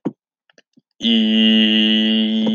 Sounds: Sigh